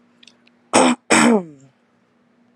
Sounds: Throat clearing